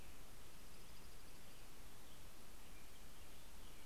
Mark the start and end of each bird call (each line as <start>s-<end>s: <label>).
0.3s-2.1s: Dark-eyed Junco (Junco hyemalis)
0.9s-3.9s: American Robin (Turdus migratorius)